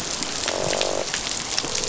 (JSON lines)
{"label": "biophony, croak", "recorder": "SoundTrap 500"}